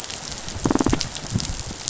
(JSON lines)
{"label": "biophony, rattle response", "recorder": "SoundTrap 500"}